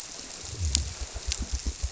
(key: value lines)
label: biophony
recorder: SoundTrap 300